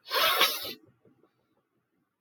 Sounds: Sniff